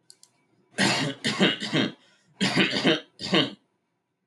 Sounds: Cough